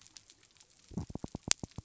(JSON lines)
{"label": "biophony", "recorder": "SoundTrap 300"}